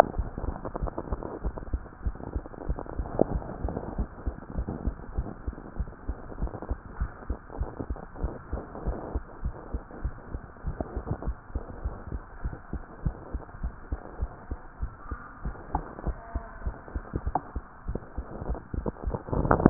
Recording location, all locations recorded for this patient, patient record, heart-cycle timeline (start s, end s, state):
mitral valve (MV)
aortic valve (AV)+pulmonary valve (PV)+tricuspid valve (TV)+mitral valve (MV)
#Age: Child
#Sex: Female
#Height: 126.0 cm
#Weight: 27.1 kg
#Pregnancy status: False
#Murmur: Absent
#Murmur locations: nan
#Most audible location: nan
#Systolic murmur timing: nan
#Systolic murmur shape: nan
#Systolic murmur grading: nan
#Systolic murmur pitch: nan
#Systolic murmur quality: nan
#Diastolic murmur timing: nan
#Diastolic murmur shape: nan
#Diastolic murmur grading: nan
#Diastolic murmur pitch: nan
#Diastolic murmur quality: nan
#Outcome: Normal
#Campaign: 2015 screening campaign
0.00	4.84	unannotated
4.84	4.98	S2
4.98	5.16	diastole
5.16	5.26	S1
5.26	5.44	systole
5.44	5.56	S2
5.56	5.78	diastole
5.78	5.88	S1
5.88	6.06	systole
6.06	6.18	S2
6.18	6.40	diastole
6.40	6.52	S1
6.52	6.68	systole
6.68	6.78	S2
6.78	6.98	diastole
6.98	7.10	S1
7.10	7.28	systole
7.28	7.38	S2
7.38	7.58	diastole
7.58	7.72	S1
7.72	7.88	systole
7.88	7.98	S2
7.98	8.22	diastole
8.22	8.36	S1
8.36	8.52	systole
8.52	8.62	S2
8.62	8.82	diastole
8.82	8.96	S1
8.96	9.14	systole
9.14	9.24	S2
9.24	9.44	diastole
9.44	9.54	S1
9.54	9.72	systole
9.72	9.82	S2
9.82	10.02	diastole
10.02	10.14	S1
10.14	10.32	systole
10.32	10.42	S2
10.42	10.66	diastole
10.66	10.78	S1
10.78	10.94	systole
10.94	11.04	S2
11.04	11.22	diastole
11.22	11.36	S1
11.36	11.54	systole
11.54	11.64	S2
11.64	11.84	diastole
11.84	11.96	S1
11.96	12.12	systole
12.12	12.22	S2
12.22	12.44	diastole
12.44	12.54	S1
12.54	12.74	systole
12.74	12.84	S2
12.84	13.04	diastole
13.04	13.14	S1
13.14	13.32	systole
13.32	13.42	S2
13.42	13.62	diastole
13.62	13.74	S1
13.74	13.90	systole
13.90	14.00	S2
14.00	14.20	diastole
14.20	14.30	S1
14.30	14.50	systole
14.50	14.60	S2
14.60	14.80	diastole
14.80	14.92	S1
14.92	15.10	systole
15.10	15.20	S2
15.20	15.44	diastole
15.44	15.56	S1
15.56	15.74	systole
15.74	15.84	S2
15.84	16.06	diastole
16.06	16.18	S1
16.18	16.34	systole
16.34	16.44	S2
16.44	16.62	diastole
16.62	16.76	S1
16.76	16.94	systole
16.94	17.04	S2
17.04	17.19	diastole
17.19	19.70	unannotated